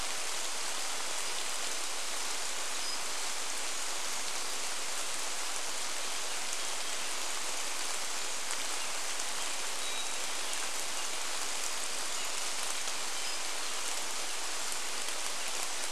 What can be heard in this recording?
rain, Brown Creeper call, Hermit Thrush song